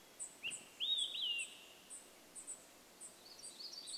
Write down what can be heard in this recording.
Olive-sided Flycatcher song, unidentified bird chip note, warbler song